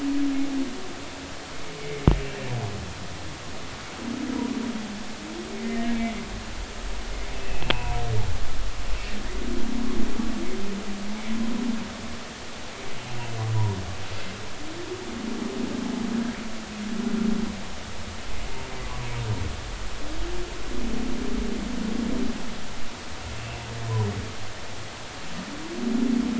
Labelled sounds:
5.6	6.0	humpback whale, 1.8 to 1.9 kHz
7.3	8.0	humpback whale, 0.83 to 2.8 kHz
23.4	23.7	humpback whale, 2.5 to 2.9 kHz

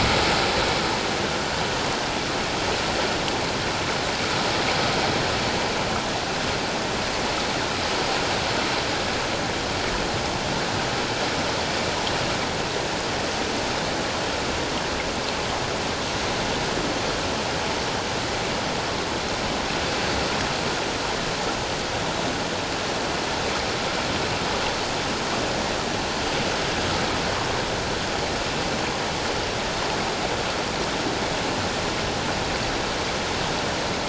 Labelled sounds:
1.1	1.3	vessel noise, 6.0 to 6.2 kHz

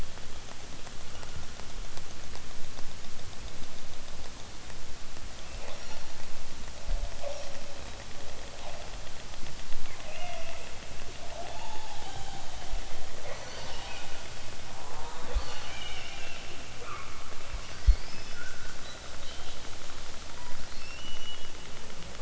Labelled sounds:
1.1	1.8	killer whale, southern Alaska resident, 0.88 to 3.4 kHz
5.4	6.2	killer whale, southern Alaska resident, 0.51 to 8.0 kHz
7.1	7.7	killer whale, southern Alaska resident, 1.1 to 6.2 kHz
9.9	10.9	killer whale, southern Alaska resident, 0.28 to 4.1 kHz
13.1	13.5	killer whale, southern Alaska resident, 0.32 to 4.5 kHz
14.7	15.6	killer whale, southern Alaska resident, 0.18 to 4.8 kHz

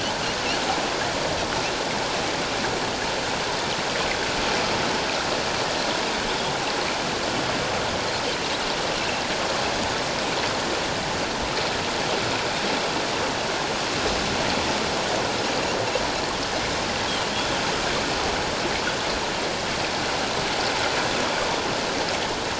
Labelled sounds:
17.3	17.6	Pacific white-sided dolphin, 3.1 to 3.6 kHz

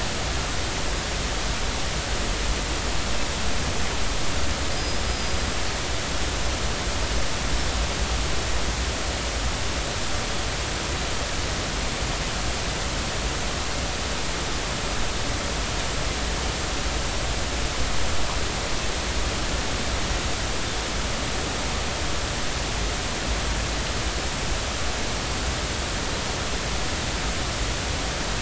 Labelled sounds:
4.8	5.4	small unidentified odontocete, 4.8 to 5.1 kHz

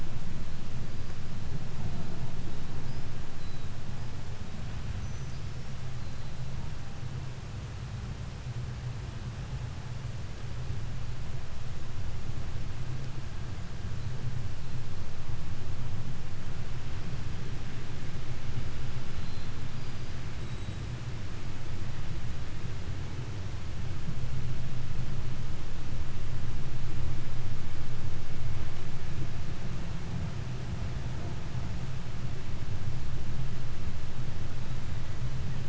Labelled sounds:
0.0	6.6	killer whale, 2.9 to 6.2 kHz
19.1	21.1	killer whale, 3.6 to 8.0 kHz

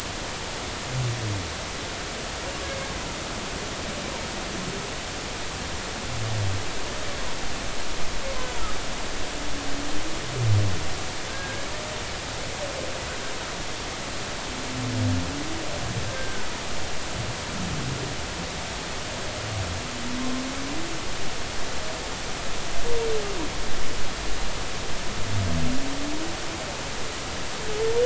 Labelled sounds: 11.3	11.7	humpback whale, 1.5 to 1.8 kHz
16.1	16.5	humpback whale, 1.4 to 1.6 kHz

